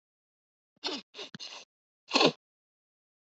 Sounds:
Sniff